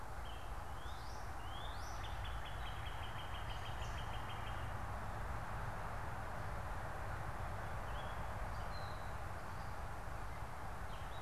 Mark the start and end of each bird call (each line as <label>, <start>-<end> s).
Gray Catbird (Dumetella carolinensis), 0.0-11.2 s
Northern Cardinal (Cardinalis cardinalis), 0.5-4.7 s